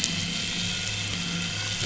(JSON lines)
{"label": "anthrophony, boat engine", "recorder": "SoundTrap 500"}